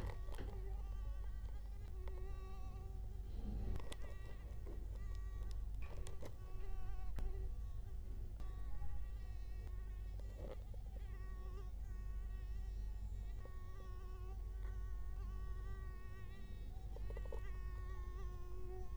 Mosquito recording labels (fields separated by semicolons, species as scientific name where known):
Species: Culex quinquefasciatus; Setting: cup